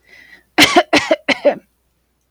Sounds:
Cough